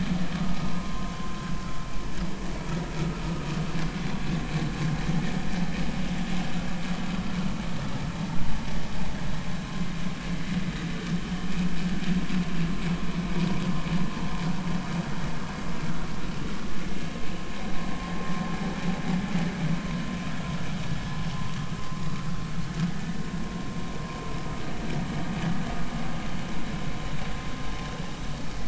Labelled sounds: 0.4	0.7	vessel noise, 1.1 to 1.4 kHz
21.4	21.7	vessel noise, 0.93 to 1.2 kHz

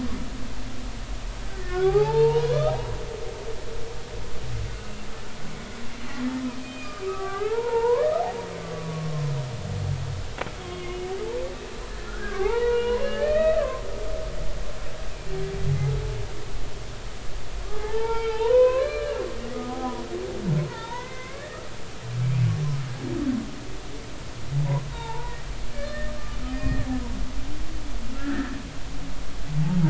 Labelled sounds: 1.5	2.6	humpback whale, 0.80 to 3.0 kHz
4.7	5.1	humpback whale, 2.7 to 2.8 kHz
6.6	8.0	humpback whale, 0.80 to 2.5 kHz
8.6	9.3	humpback whale, 0.99 to 1.2 kHz
10.6	11.0	humpback whale, 1.0 to 3.4 kHz
12.0	13.9	humpback whale, 0.80 to 3.9 kHz
17.7	20.0	humpback whale, 0.80 to 4.2 kHz
20.7	21.6	humpback whale, 0.86 to 3.8 kHz
24.5	25.4	humpback whale, 0.83 to 1.5 kHz
25.7	26.9	humpback whale, 1.7 to 5.0 kHz
28.1	28.5	humpback whale, 1.3 to 1.9 kHz

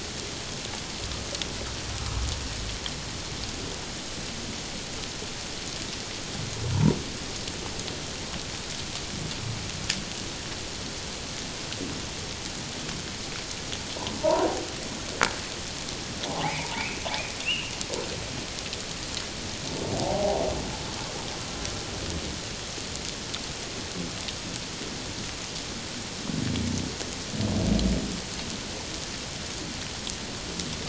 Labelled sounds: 14.2	14.5	humpback whale, 0.84 to 1.1 kHz
16.2	17.7	humpback whale, 0.78 to 3.0 kHz
20.0	20.4	humpback whale, 0.78 to 0.97 kHz

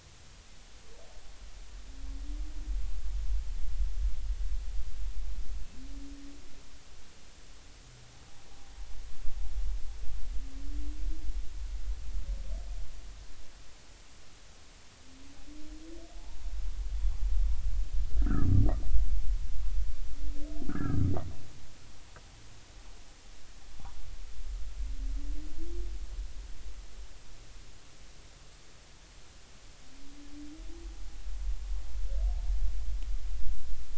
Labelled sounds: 18.2	18.5	humpback whale, 1.2 to 1.9 kHz
20.7	21.0	humpback whale, 1.2 to 1.8 kHz

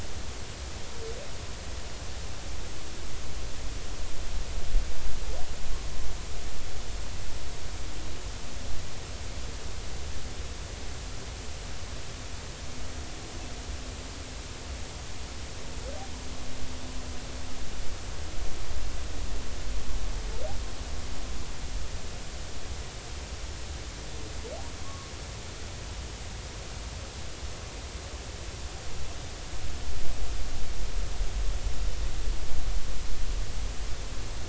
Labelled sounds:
24.8	25.1	humpback whale, 0.96 to 1.2 kHz

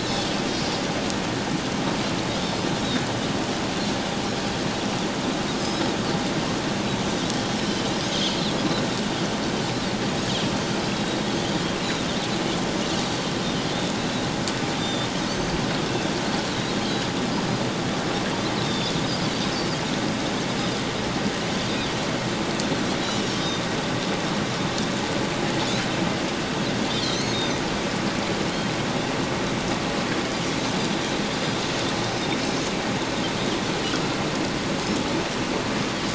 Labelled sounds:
0.0	0.8	Pacific white-sided dolphin, 4.5 to 5.5 kHz
5.6	5.9	Pacific white-sided dolphin, 4.9 to 5.2 kHz
7.4	7.9	Pacific white-sided dolphin, 4.3 to 5.4 kHz
10.9	11.3	Pacific white-sided dolphin, 3.6 to 4.0 kHz
11.8	12.1	Pacific white-sided dolphin, 3.6 to 4.1 kHz
14.0	14.3	Pacific white-sided dolphin, 3.7 to 4.0 kHz
14.8	15.6	Pacific white-sided dolphin, 3.5 to 6.2 kHz
18.6	19.0	Pacific white-sided dolphin, 3.4 to 5.5 kHz
23.0	23.3	Pacific white-sided dolphin, 2.8 to 3.1 kHz
26.9	27.6	Pacific white-sided dolphin, 3.0 to 4.4 kHz

